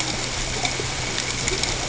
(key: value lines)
label: ambient
recorder: HydroMoth